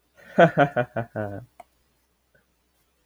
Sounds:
Laughter